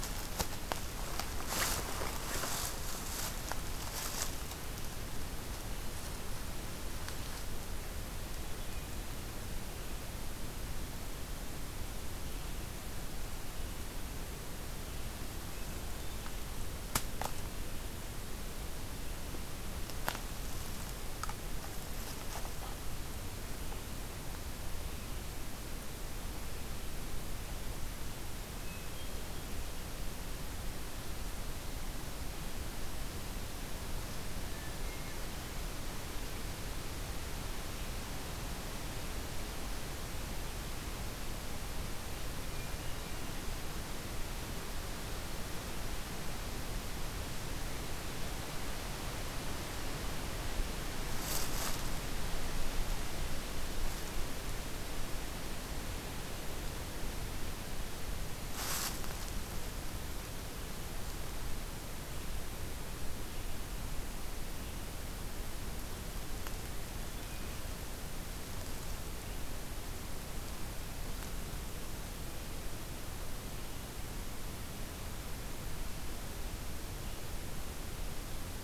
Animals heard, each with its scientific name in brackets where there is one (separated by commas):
Hermit Thrush (Catharus guttatus), Red-eyed Vireo (Vireo olivaceus)